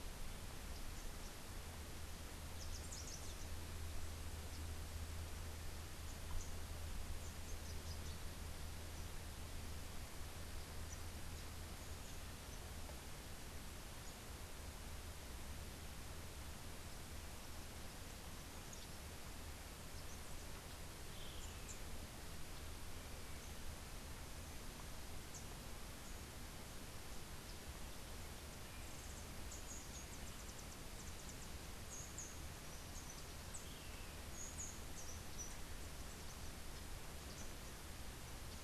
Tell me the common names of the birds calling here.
Rufous-capped Warbler, Rufous-tailed Hummingbird